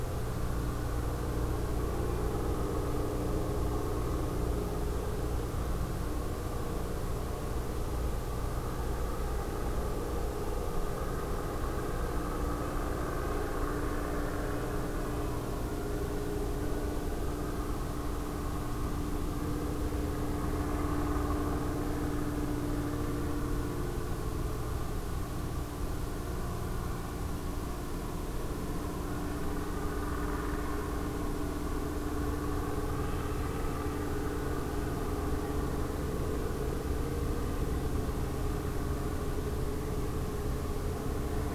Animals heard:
forest ambience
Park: Acadia National Park